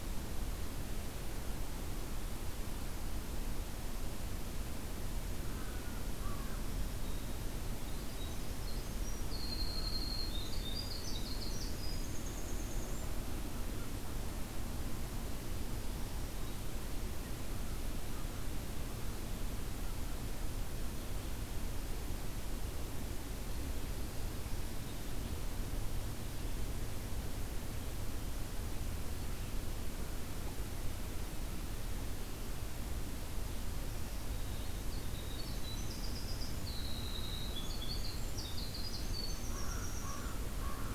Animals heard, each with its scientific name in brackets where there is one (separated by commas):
Winter Wren (Troglodytes hiemalis), American Crow (Corvus brachyrhynchos), Black-throated Green Warbler (Setophaga virens)